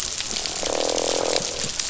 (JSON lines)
{"label": "biophony, croak", "recorder": "SoundTrap 500"}